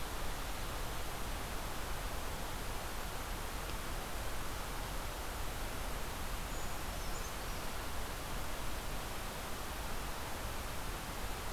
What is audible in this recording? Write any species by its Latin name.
Certhia americana